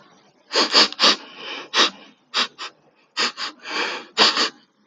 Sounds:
Sniff